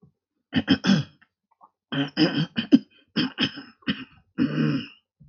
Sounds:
Throat clearing